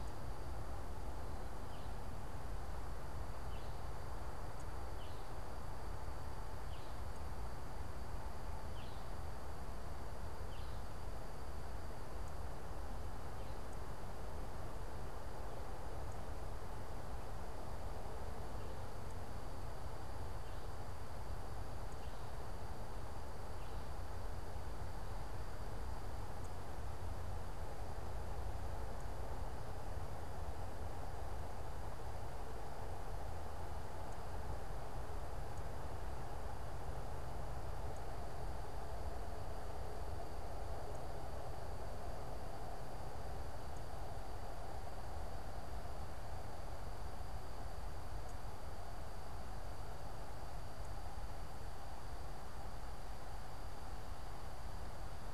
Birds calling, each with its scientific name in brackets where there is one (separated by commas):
unidentified bird